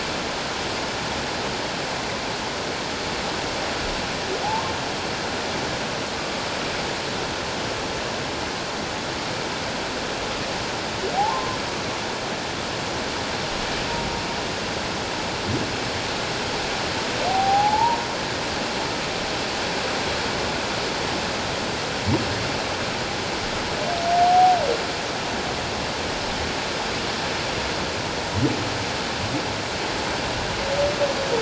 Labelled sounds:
4.4	4.7	humpback whale, 0.78 to 1.1 kHz
11.1	11.6	humpback whale, 0.78 to 1.1 kHz
17.3	18.1	humpback whale, 0.78 to 1.0 kHz
24.2	24.6	humpback whale, 0.78 to 0.81 kHz

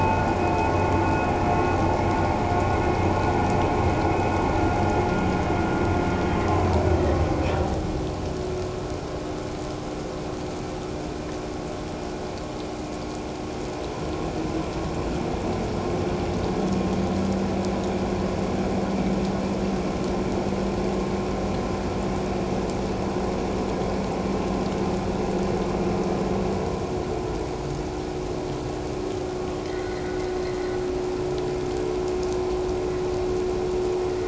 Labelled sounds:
29.6	30.2	vessel noise, 1.8 to 2.1 kHz

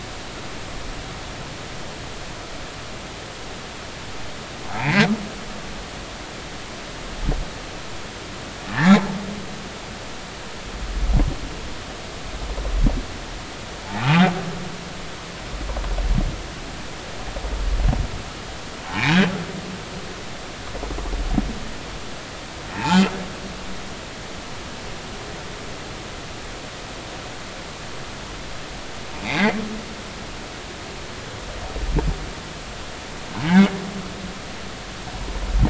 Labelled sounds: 4.7	5.1	humpback whale, 0.80 to 2.6 kHz
8.7	9.1	humpback whale, 0.80 to 2.4 kHz
18.9	19.2	humpback whale, 0.80 to 1.1 kHz
22.7	23.0	humpback whale, 0.80 to 0.96 kHz
29.2	30.6	humpback whale, 1.8 to 3.9 kHz

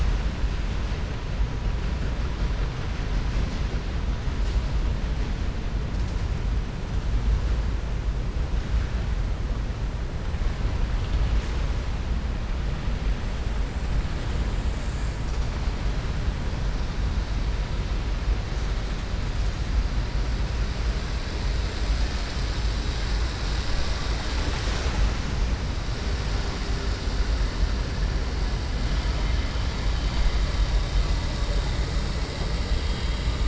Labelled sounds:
32.6	33.3	vessel noise, 2.2 to 4.0 kHz

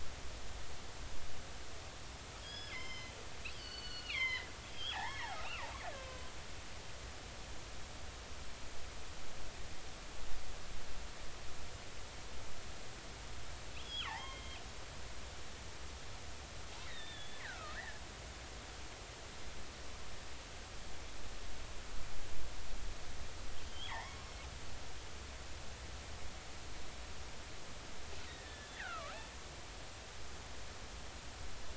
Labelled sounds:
2.4	6.2	killer whale, northern resident, G clan, GG subclan, 0.80 to 5.5 kHz
13.8	14.6	killer whale, northern resident, G clan, GG subclan, 0.80 to 3.5 kHz
16.9	18.0	killer whale, northern resident, G clan, GG subclan, 1.2 to 4.0 kHz
23.7	24.3	killer whale, northern resident, G clan, GG subclan, 0.80 to 3.5 kHz
28.3	29.1	killer whale, northern resident, G clan, GG subclan, 1.1 to 2.1 kHz

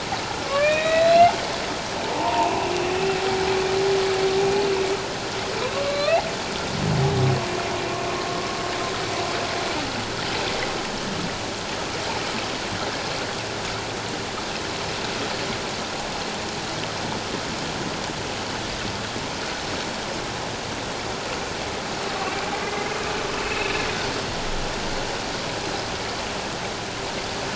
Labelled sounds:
0.4	1.3	humpback whale, 1.0 to 4.2 kHz
2.0	2.7	humpback whale, 0.81 to 1.1 kHz
5.6	6.2	humpback whale, 0.97 to 4.2 kHz
22.5	23.7	humpback whale, 2.0 to 2.7 kHz

